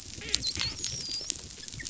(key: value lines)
label: biophony, dolphin
recorder: SoundTrap 500